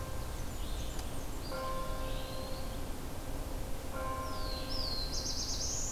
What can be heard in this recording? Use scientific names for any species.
Setophaga fusca, Vireo olivaceus, Contopus virens, Setophaga caerulescens